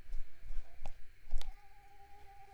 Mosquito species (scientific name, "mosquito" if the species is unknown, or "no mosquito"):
Mansonia uniformis